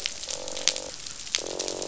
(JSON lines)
{"label": "biophony, croak", "recorder": "SoundTrap 500"}